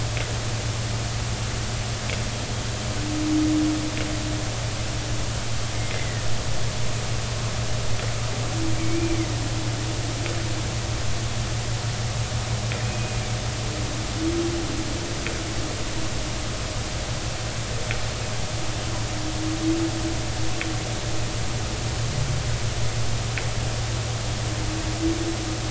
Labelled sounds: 5.7	6.2	humpback whale, 1.8 to 2.2 kHz
8.8	9.3	humpback whale, 2.0 to 2.5 kHz
12.8	13.3	humpback whale, 2.2 to 2.6 kHz

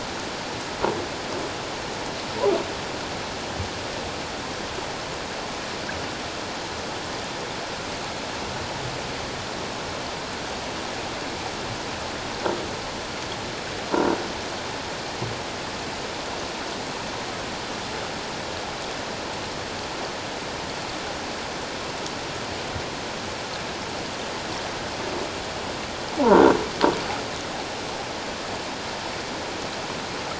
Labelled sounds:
26.2	26.5	croaking sound likely from a nearby submerged object, 0.78 to 1.6 kHz

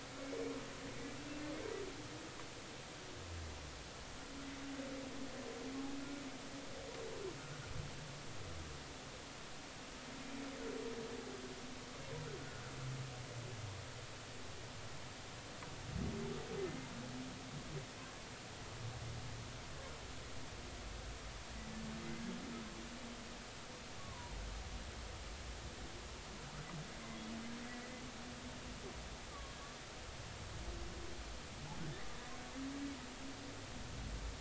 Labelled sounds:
0.2	0.5	humpback whale, 2.1 to 2.5 kHz
12.4	12.6	humpback whale, 1.4 to 1.6 kHz
24.0	24.4	humpback whale, 0.90 to 1.2 kHz
29.3	29.6	humpback whale, 1.1 to 1.2 kHz

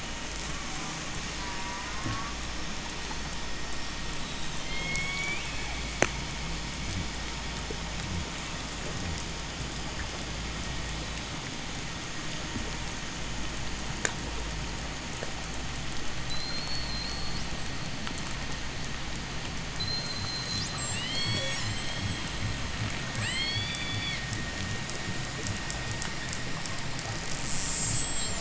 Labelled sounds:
0.2	2.5	killer whale, J pod, call S04, 0.29 to 8.0 kHz
1.9	3.5	killer whale, J pod, 7.5 to 8.0 kHz
4.5	5.8	killer whale, J pod, call S01, 1.3 to 8.0 kHz
16.2	17.7	killer whale, J pod, 3.5 to 4.9 kHz
19.7	22.6	killer whale, J pod, 1.0 to 8.0 kHz
22.9	24.2	killer whale, J pod, 1.3 to 8.0 kHz
27.2	28.3	killer whale, J pod, 2.2 to 8.0 kHz

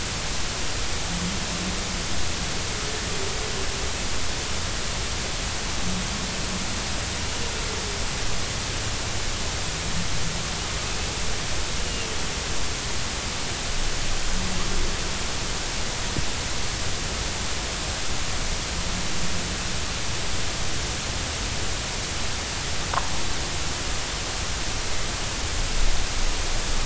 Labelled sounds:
11.8	12.1	humpback whale, 2.7 to 2.9 kHz

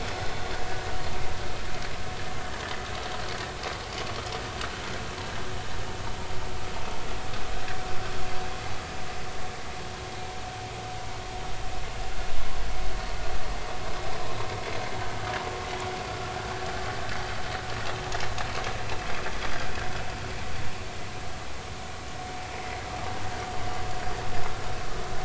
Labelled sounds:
22.5	22.8	vessel noise, 2.0 to 2.2 kHz

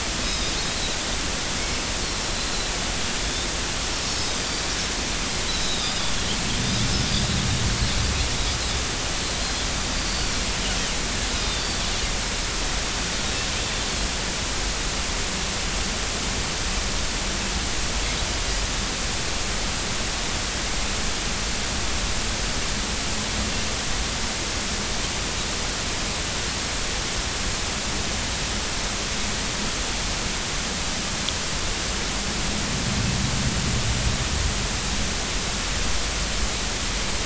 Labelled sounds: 0.2	0.5	Pacific white-sided dolphin, 3.6 to 5.2 kHz
3.2	3.5	Pacific white-sided dolphin, 3.4 to 3.7 kHz
4.1	4.4	Pacific white-sided dolphin, 5.0 to 5.5 kHz
5.5	5.9	Pacific white-sided dolphin, 3.5 to 4.1 kHz
6.8	7.1	Pacific white-sided dolphin, 5.1 to 5.3 kHz
10.0	10.3	Pacific white-sided dolphin, 4.3 to 4.8 kHz
11.3	11.7	Pacific white-sided dolphin, 3.4 to 3.9 kHz

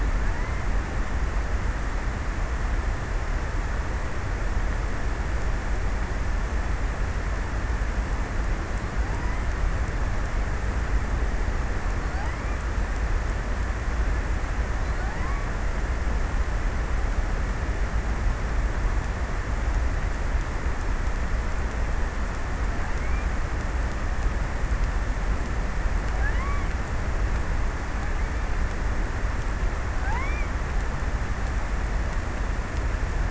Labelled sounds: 8.9	9.8	killer whale, offshore, 0.37 to 2.5 kHz
11.6	13.0	killer whale, offshore, 0.47 to 2.6 kHz
14.4	15.8	killer whale, offshore, 0.51 to 2.7 kHz
22.4	23.4	killer whale, offshore, 0.45 to 2.7 kHz
25.6	27.2	killer whale, offshore, 0.47 to 2.7 kHz
29.5	30.8	killer whale, offshore, 0.49 to 2.6 kHz

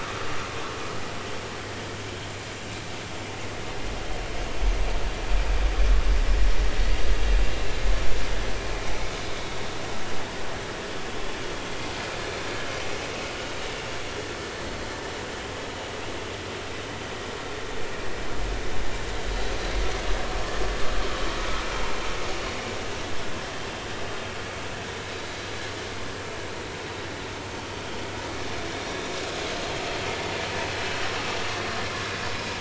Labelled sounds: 32.3	32.5	vessel noise, 2.4 to 2.5 kHz

